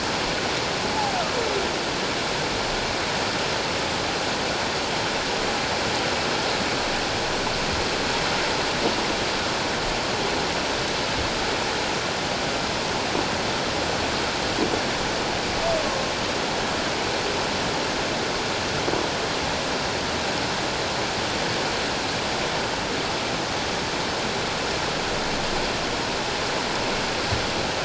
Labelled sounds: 0.9	1.2	humpback whale, 0.78 to 0.91 kHz

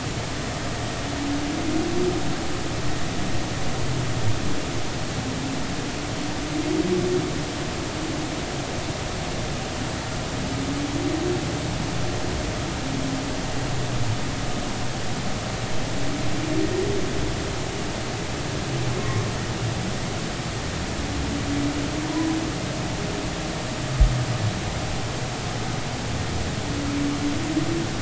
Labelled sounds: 18.9	19.2	humpback whale, 1.0 to 2.2 kHz

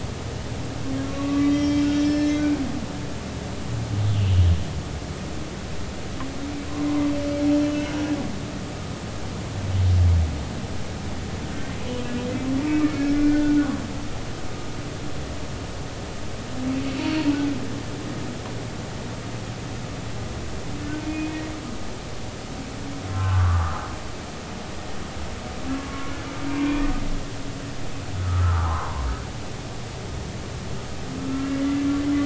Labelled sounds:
1.1	2.6	humpback whale, 1.1 to 5.4 kHz
4.1	4.4	humpback whale, 2.6 to 3.0 kHz
12.6	13.6	humpback whale, 1.4 to 2.5 kHz
17.0	17.3	humpback whale, 4.2 to 4.6 kHz
21.0	21.4	humpback whale, 2.4 to 2.6 kHz
23.1	23.8	humpback whale, 0.99 to 1.4 kHz
25.9	26.1	humpback whale, 1.1 to 1.2 kHz
26.5	26.9	humpback whale, 2.3 to 2.5 kHz
28.2	29.0	humpback whale, 0.80 to 1.5 kHz
31.2	31.5	humpback whale, 1.3 to 1.4 kHz

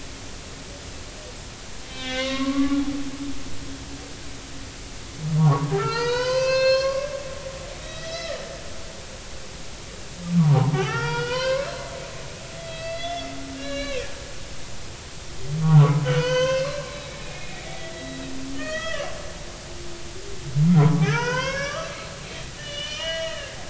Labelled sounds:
1.9	2.8	humpback whale, 0.99 to 3.9 kHz
5.8	7.1	humpback whale, 0.86 to 6.7 kHz
7.8	8.7	humpback whale, 1.2 to 5.9 kHz
10.4	11.8	humpback whale, 0.80 to 5.7 kHz
12.6	13.3	humpback whale, 1.9 to 4.0 kHz
13.5	14.1	humpback whale, 1.5 to 5.7 kHz
15.6	19.1	humpback whale, 0.80 to 6.4 kHz
20.8	21.9	humpback whale, 0.86 to 6.3 kHz
22.6	23.5	humpback whale, 1.6 to 4.3 kHz

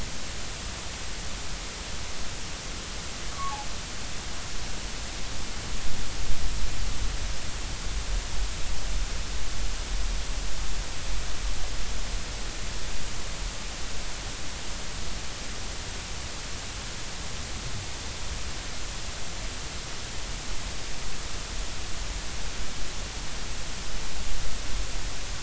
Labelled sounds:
3.3	3.6	humpback whale, 1.0 to 1.2 kHz

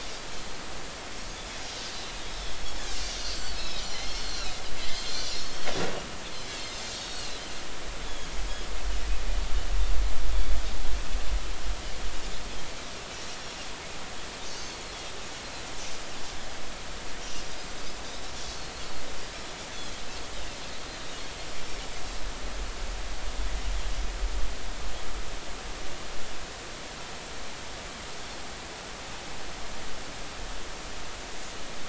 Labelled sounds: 2.6	2.9	Pacific white-sided dolphin, 5.1 to 5.4 kHz
3.4	5.6	Pacific white-sided dolphin, 1.9 to 7.3 kHz
6.3	7.3	Pacific white-sided dolphin, 4.1 to 6.4 kHz
8.1	8.3	Pacific white-sided dolphin, 6.4 to 6.9 kHz
14.5	14.8	Pacific white-sided dolphin, 4.3 to 4.6 kHz
18.4	18.7	Pacific white-sided dolphin, 4.1 to 4.6 kHz

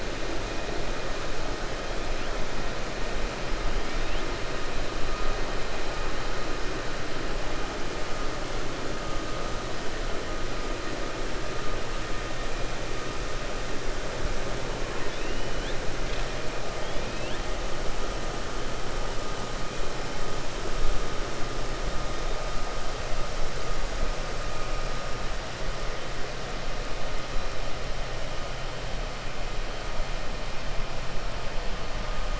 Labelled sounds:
16.8	17.4	killer whale, 1.8 to 3.9 kHz

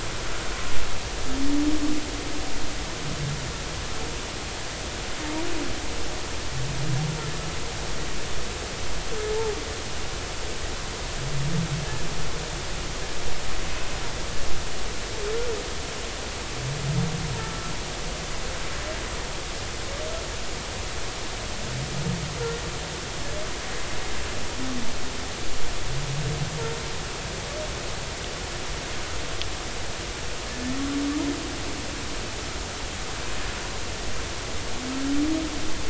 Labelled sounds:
17.4	17.8	humpback whale, 1.3 to 1.4 kHz

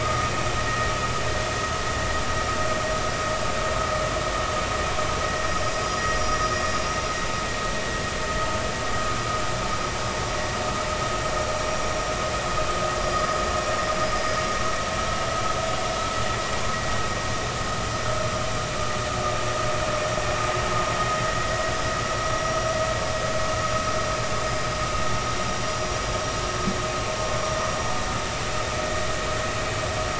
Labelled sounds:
5.6	6.4	vessel noise, 5.0 to 5.7 kHz
13.0	14.4	vessel noise, 4.8 to 5.1 kHz
27.7	28.3	vessel noise, 5.7 to 5.9 kHz

